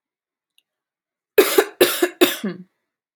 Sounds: Cough